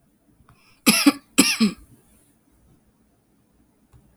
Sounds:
Cough